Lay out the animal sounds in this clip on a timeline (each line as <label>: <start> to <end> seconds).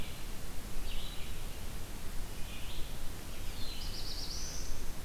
Red-eyed Vireo (Vireo olivaceus): 0.0 to 5.0 seconds
Black-throated Blue Warbler (Setophaga caerulescens): 3.2 to 5.0 seconds